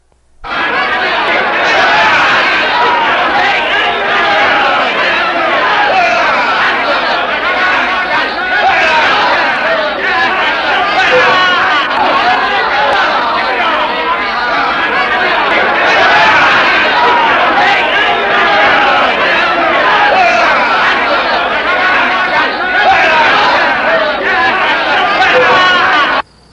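Loud angry crowd noise indoors. 0.4 - 26.2
An angry man screams loudly. 6.0 - 7.0
An angry man screams loudly. 8.4 - 9.2
An angry man screams loudly. 22.7 - 23.6

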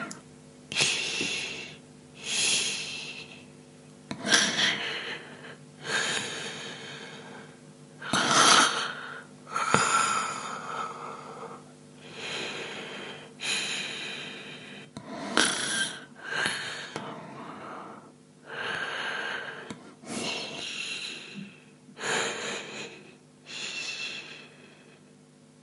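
Breathing. 0.0 - 3.4
A voice with background air pressure or recorder noise. 0.0 - 25.6
Human snoring and loud breathing intermittently. 0.0 - 25.6
Snoring. 4.0 - 7.0
Snoring loudly in a quiet indoor room. 7.8 - 11.4
Heavy breathing. 11.8 - 14.5
Clear snoring in a calm room. 14.7 - 18.0
Heavy breathing. 18.5 - 25.5

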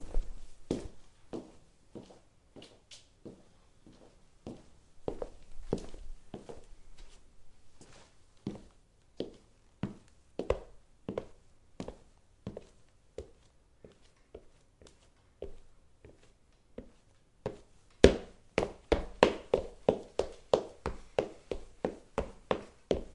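Calm footsteps on a wooden floor. 0.0 - 17.6
Fast, loud footsteps on a wooden floor. 17.9 - 23.1

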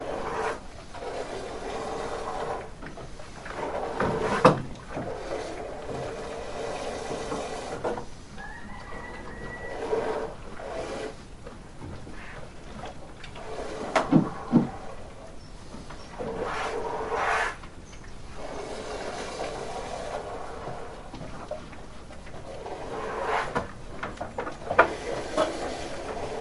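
Someone milks a cow at irregular intervals. 0.0 - 26.4
A stool is placed down while milking continues in the background. 3.7 - 4.8
Someone is milking while chickens cluck in the background. 8.3 - 9.9
A stool is moved as milking continues in the background. 13.9 - 14.8
Clattering sounds of cups followed by milking sounds in the background. 23.5 - 25.7

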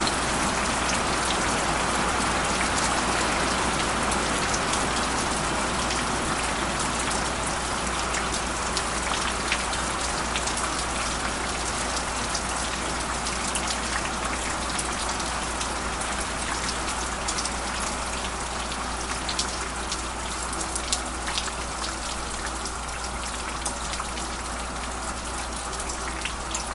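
Sounds of rain or wind. 0.0 - 26.7
Water falling into a small stream. 0.0 - 26.7

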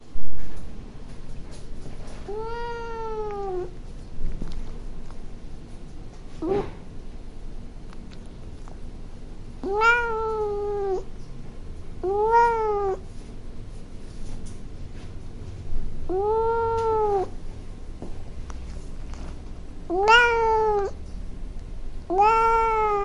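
A cat is meowing. 2.3 - 3.7
A cat meows in an annoyed manner. 6.2 - 7.0
A cat is meowing. 9.3 - 11.0
A cat meows in an annoyed manner. 12.0 - 13.2
A cat meows in an annoyed manner. 15.8 - 17.3
A cat is meowing. 19.8 - 21.0
A cat is meowing. 22.1 - 23.0

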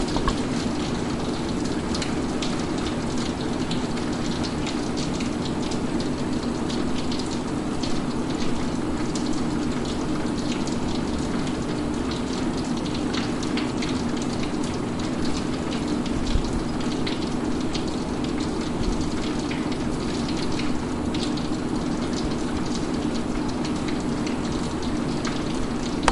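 Rain falls steadily on a windowpane, creating a constant indoor ambience. 0.0 - 26.1

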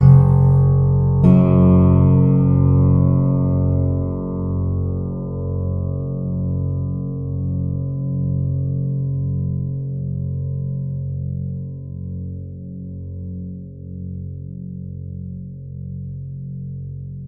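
A string instrument is plucked with a very deep note that has a long decay. 0.0 - 17.3

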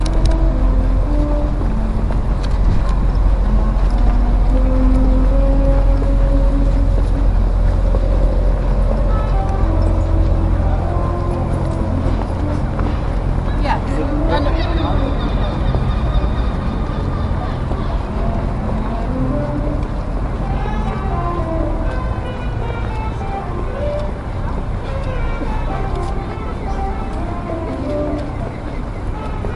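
A saxophone plays a solo with sharp, broken phrases, pausing briefly between each note to create a fragmented yet expressive melody. 0.0 - 13.7
A saxophone plays a solo with sharp, broken phrases while distant voices and occasional seagulls can be heard in the background. 13.8 - 28.6

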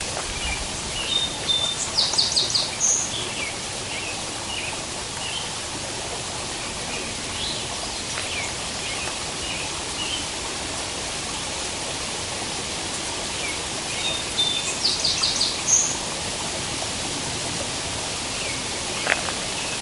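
Noise of driving a car with the window open. 0.0 - 19.8
A blackbird is singing. 1.1 - 3.1
A blackbird is singing. 14.0 - 16.1

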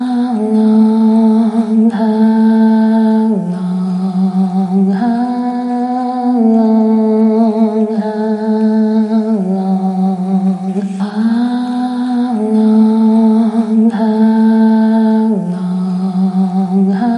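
A woman is singing loudly and gently, repeating certain tones nearby. 0.0 - 17.2
Background noise plays in a static, monotonic manner. 0.0 - 17.2

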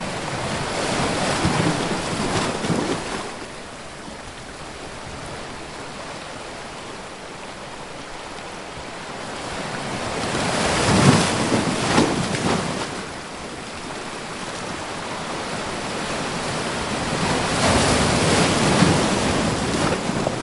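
Ocean waves continuously crash against the coast, gradually increasing in intensity in the middle and at the end. 0.0 - 20.4

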